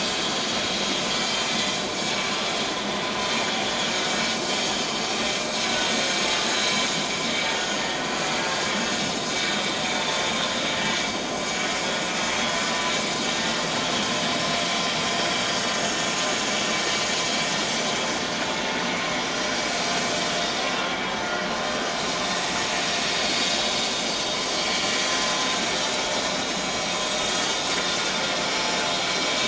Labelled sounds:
1.5	2.3	vessel noise, 2.0 to 2.3 kHz
19.9	20.2	vessel noise, 7.4 to 7.5 kHz

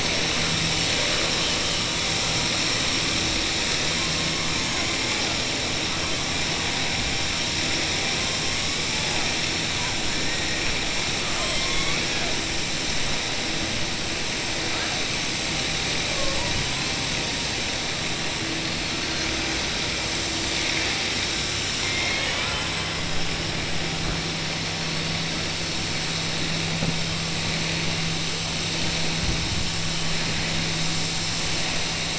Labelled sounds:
21.8	22.9	killer whale, southern resident, 0.55 to 3.8 kHz

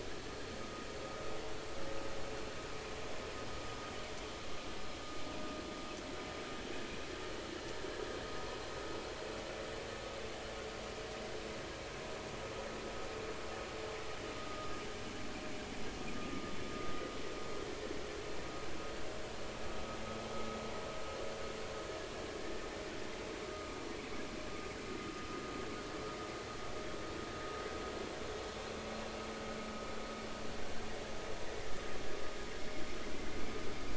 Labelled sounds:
14.4	14.7	vessel noise, 1.2 to 1.3 kHz
23.5	23.7	vessel noise, 1.2 to 1.3 kHz

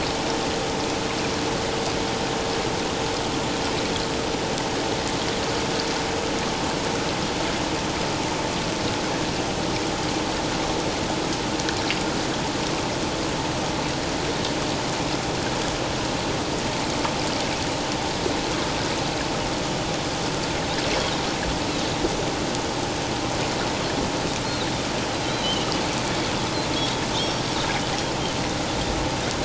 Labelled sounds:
25.2	25.7	Pacific white-sided dolphin, 2.8 to 4.1 kHz
27.2	27.4	Pacific white-sided dolphin, 5.2 to 5.7 kHz

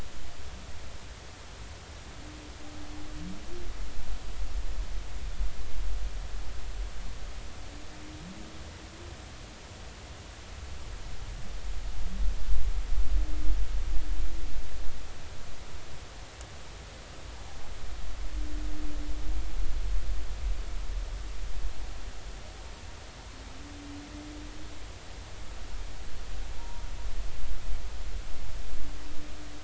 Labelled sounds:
26.6	26.9	humpback whale, 0.90 to 0.99 kHz

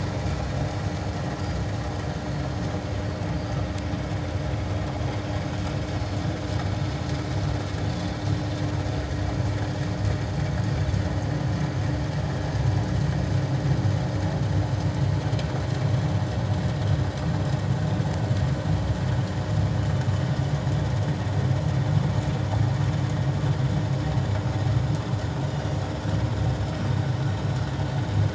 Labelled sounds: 2.3	2.5	Pacific white-sided dolphin, 4.2 to 4.4 kHz
3.3	3.6	Pacific white-sided dolphin, 4.7 to 4.9 kHz
25.5	25.8	Pacific white-sided dolphin, 2.8 to 2.9 kHz

